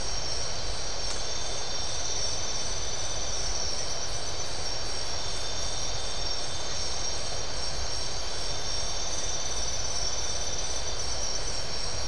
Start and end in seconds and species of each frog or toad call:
none
Atlantic Forest, 10:30pm

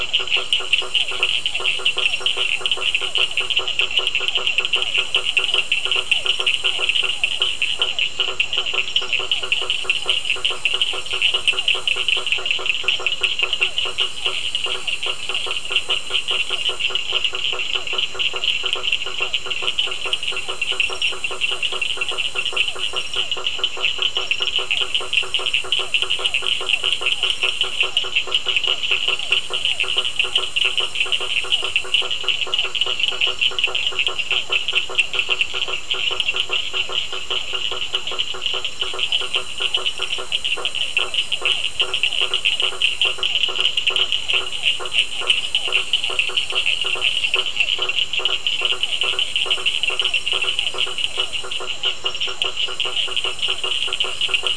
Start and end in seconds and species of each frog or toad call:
0.0	54.5	blacksmith tree frog
0.0	54.5	Cochran's lime tree frog
1.0	54.5	Physalaemus cuvieri
Atlantic Forest, 8pm

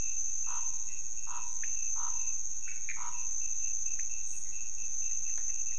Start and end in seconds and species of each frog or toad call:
0.4	3.3	Scinax fuscovarius
1.6	1.8	pointedbelly frog
2.9	3.1	Pithecopus azureus
3.9	5.7	pointedbelly frog
Cerrado, 4am

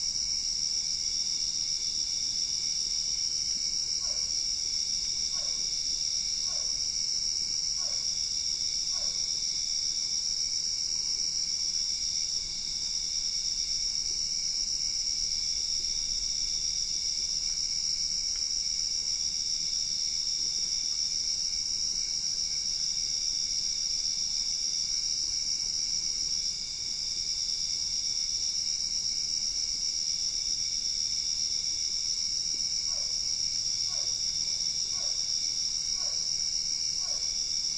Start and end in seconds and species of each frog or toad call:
4.0	9.2	Physalaemus cuvieri
32.7	37.3	Physalaemus cuvieri
Cerrado, 11pm

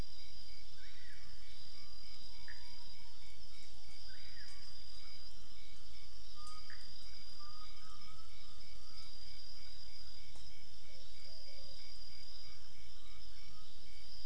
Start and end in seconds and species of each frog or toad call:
2.4	2.7	Pithecopus azureus
6.6	6.9	Pithecopus azureus
Cerrado, 4am

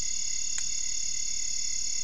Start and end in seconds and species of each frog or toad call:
none
Cerrado, midnight

